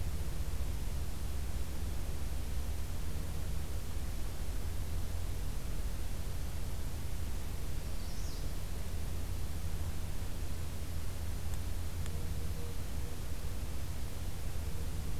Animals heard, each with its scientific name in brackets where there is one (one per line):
Magnolia Warbler (Setophaga magnolia)